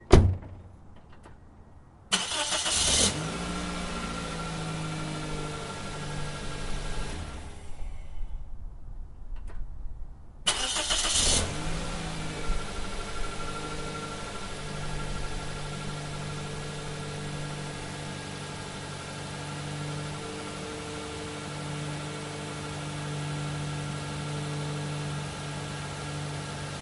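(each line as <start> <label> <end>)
0.0 A vehicle door closes with a loud thumping sound. 0.4
2.1 A vehicle's engine starts. 3.2
3.0 A vehicle engine hums rhythmically in a steady pattern. 7.8
7.7 A vehicle's engine muffledly turns off and fades away. 10.4
10.4 A vehicle's engine starts. 11.5
11.5 A vehicle engine hums rhythmically in a steady pattern. 26.8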